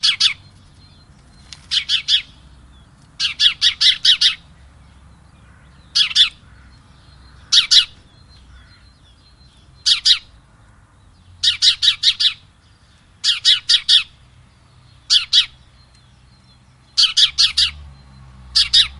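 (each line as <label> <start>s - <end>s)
A group of birds chirps in the distant background with a repetitive rhythm. 0.0s - 19.0s
A bird chirps at a high frequency. 0.0s - 0.4s
A bird chirps at a high frequency. 1.7s - 2.2s
A bird chirps at a high frequency. 3.2s - 4.4s
A bird chirps twice with a high frequency. 5.9s - 6.3s
A bird chirps at a high frequency. 7.5s - 7.9s
A bird chirps at a high frequency. 9.8s - 10.2s
A bird chirps at a high frequency. 11.4s - 12.3s
A bird chirps at a high frequency. 13.2s - 14.1s
A bird chirps at a high frequency. 15.1s - 15.5s
A bird chirps at a high frequency. 16.9s - 17.7s
A bird chirps at a high frequency. 18.5s - 18.9s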